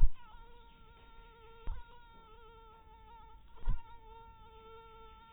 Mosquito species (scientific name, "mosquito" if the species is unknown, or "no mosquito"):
mosquito